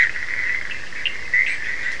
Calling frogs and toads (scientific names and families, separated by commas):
Boana bischoffi (Hylidae), Sphaenorhynchus surdus (Hylidae)